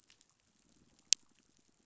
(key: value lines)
label: biophony, pulse
recorder: SoundTrap 500